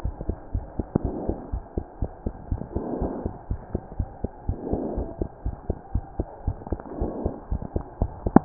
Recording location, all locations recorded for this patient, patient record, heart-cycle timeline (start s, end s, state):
pulmonary valve (PV)
aortic valve (AV)+pulmonary valve (PV)+tricuspid valve (TV)+mitral valve (MV)
#Age: Child
#Sex: Female
#Height: 92.0 cm
#Weight: 13.6 kg
#Pregnancy status: False
#Murmur: Absent
#Murmur locations: nan
#Most audible location: nan
#Systolic murmur timing: nan
#Systolic murmur shape: nan
#Systolic murmur grading: nan
#Systolic murmur pitch: nan
#Systolic murmur quality: nan
#Diastolic murmur timing: nan
#Diastolic murmur shape: nan
#Diastolic murmur grading: nan
#Diastolic murmur pitch: nan
#Diastolic murmur quality: nan
#Outcome: Abnormal
#Campaign: 2015 screening campaign
0.00	1.50	unannotated
1.50	1.64	S1
1.64	1.75	systole
1.75	1.84	S2
1.84	2.00	diastole
2.00	2.10	S1
2.10	2.22	systole
2.22	2.34	S2
2.34	2.50	diastole
2.50	2.60	S1
2.60	2.74	systole
2.74	2.88	S2
2.88	3.00	diastole
3.00	3.16	S1
3.16	3.24	systole
3.24	3.34	S2
3.34	3.50	diastole
3.50	3.62	S1
3.62	3.70	systole
3.70	3.82	S2
3.82	3.96	diastole
3.96	4.08	S1
4.08	4.20	systole
4.20	4.30	S2
4.30	4.46	diastole
4.46	4.58	S1
4.58	4.68	systole
4.68	4.82	S2
4.82	4.96	diastole
4.96	5.10	S1
5.10	5.20	systole
5.20	5.30	S2
5.30	5.44	diastole
5.44	5.56	S1
5.56	5.68	systole
5.68	5.78	S2
5.78	5.92	diastole
5.92	6.06	S1
6.06	6.18	systole
6.18	6.28	S2
6.28	6.46	diastole
6.46	6.58	S1
6.58	6.68	systole
6.68	6.80	S2
6.80	6.98	diastole
6.98	7.14	S1
7.14	7.20	systole
7.20	7.34	S2
7.34	7.50	diastole
7.50	7.62	S1
7.62	7.72	systole
7.72	7.84	S2
7.84	8.00	diastole
8.00	8.09	S1
8.09	8.45	unannotated